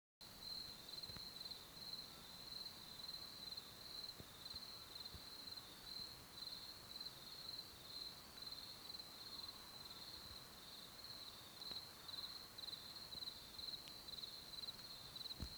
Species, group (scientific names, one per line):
Gryllus campestris
Orthoptera